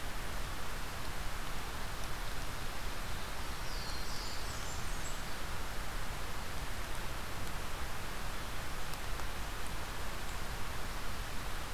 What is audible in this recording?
Black-throated Blue Warbler, Blackburnian Warbler